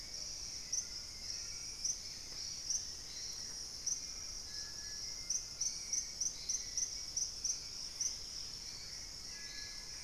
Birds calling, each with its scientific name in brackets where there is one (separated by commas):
Hauxwell's Thrush (Turdus hauxwelli), Thrush-like Wren (Campylorhynchus turdinus), Dusky-capped Greenlet (Pachysylvia hypoxantha), unidentified bird